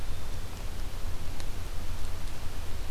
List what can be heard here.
Black-capped Chickadee